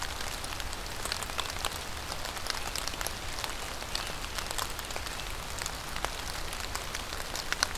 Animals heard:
forest ambience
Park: Marsh-Billings-Rockefeller National Historical Park